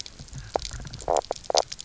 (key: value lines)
label: biophony, knock croak
recorder: SoundTrap 300